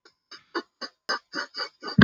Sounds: Sniff